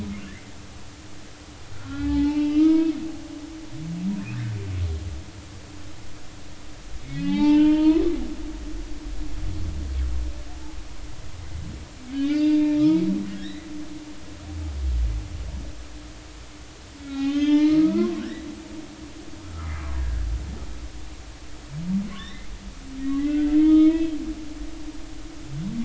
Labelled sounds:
1.7	2.9	humpback whale, 0.80 to 4.8 kHz
7.1	8.5	humpback whale, 0.80 to 4.8 kHz
12.1	13.0	humpback whale, 0.86 to 5.0 kHz
13.3	13.7	humpback whale, 1.6 to 2.1 kHz
17.0	18.4	humpback whale, 0.80 to 5.2 kHz
19.4	20.3	humpback whale, 1.2 to 1.7 kHz
22.1	24.2	humpback whale, 0.99 to 4.1 kHz

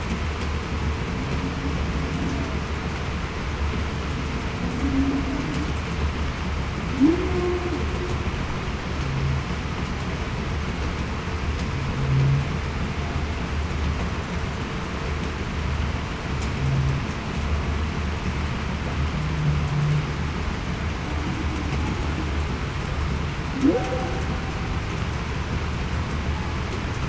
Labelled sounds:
4.8	5.2	humpback whale, 0.23 to 0.33 kHz
7.0	7.6	humpback whale, 0.28 to 0.40 kHz
23.6	24.0	humpback whale, 0.45 to 0.58 kHz

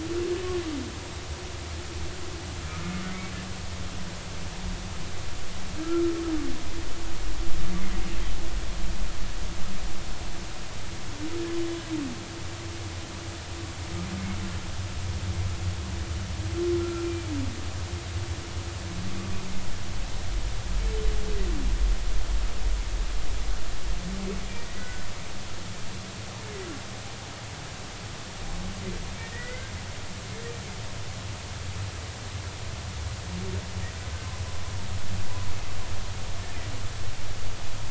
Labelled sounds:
16.8	17.3	humpback whale, 1.3 to 2.4 kHz
24.7	25.0	humpback whale, 1.4 to 2.0 kHz
29.2	29.7	humpback whale, 1.4 to 2.1 kHz

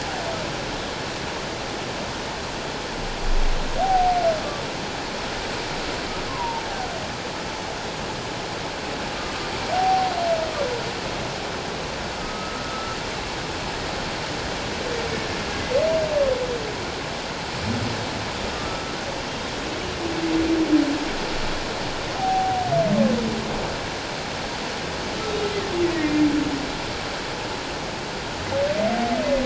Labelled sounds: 3.8	4.2	humpback whale, 0.78 to 0.84 kHz
6.3	6.6	humpback whale, 0.84 to 1.1 kHz
9.7	10.1	humpback whale, 0.78 to 0.81 kHz
12.2	13.0	humpback whale, 1.2 to 1.4 kHz
18.7	19.0	humpback whale, 1.28 to 1.34 kHz
22.2	22.7	humpback whale, 0.78 to 0.81 kHz
25.8	26.1	humpback whale, 1.8 to 2.0 kHz

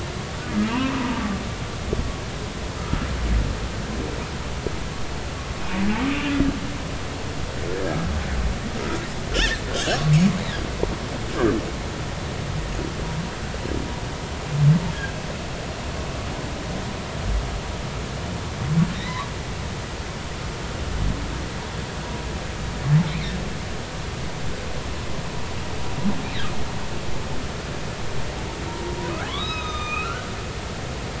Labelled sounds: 0.7	1.3	humpback whale, 0.80 to 2.9 kHz
9.8	10.0	humpback whale, 6.4 to 6.9 kHz
18.9	19.3	humpback whale, 1.8 to 4.1 kHz
23.1	23.4	humpback whale, 3.6 to 4.1 kHz
28.7	28.9	humpback whale, 0.86 to 1.1 kHz
29.3	30.3	humpback whale, 0.99 to 6.5 kHz

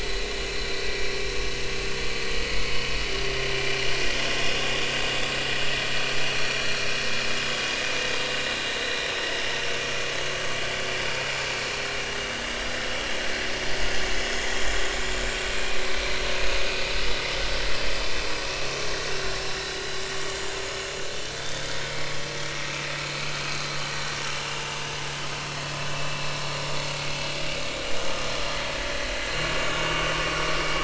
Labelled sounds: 2.4	2.8	vessel noise, 2.1 to 2.3 kHz
6.4	6.9	vessel noise, 1.3 to 5.8 kHz
7.7	7.9	vessel noise, 3.6 to 3.7 kHz
8.4	9.1	vessel noise, 3.7 to 4.1 kHz
11.2	11.5	vessel noise, 6.8 to 7.1 kHz
15.5	16.9	vessel noise, 2.3 to 2.7 kHz
20.6	20.9	vessel noise, 6.8 to 7.0 kHz
24.2	24.7	vessel noise, 2.7 to 2.9 kHz
25.9	26.2	vessel noise, 2.6 to 2.9 kHz
29.9	30.1	vessel noise, 1.1 to 1.2 kHz

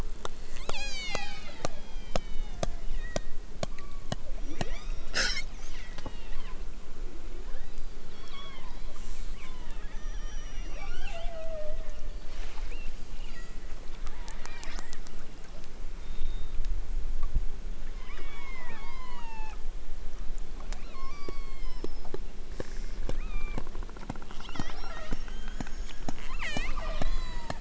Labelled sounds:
0.4	3.4	killer whale, southern Alaska resident, 0.46 to 8.0 kHz
3.7	5.1	killer whale, southern Alaska resident, 0.73 to 8.0 kHz
5.6	6.7	killer whale, southern Alaska resident, 0.83 to 5.0 kHz
7.4	13.7	killer whale, southern Alaska resident, 0.23 to 8.0 kHz
14.4	14.7	killer whale, southern Alaska resident, 0.60 to 5.0 kHz
17.9	19.7	killer whale, southern Alaska resident, 0.41 to 8.0 kHz
20.7	21.9	killer whale, southern Alaska resident, 0.69 to 6.2 kHz
23.1	23.7	killer whale, southern Alaska resident, 0.73 to 4.2 kHz
24.3	25.3	killer whale, southern Alaska resident, 0.23 to 6.4 kHz
26.4	27.6	killer whale, southern Alaska resident, 0.32 to 8.0 kHz

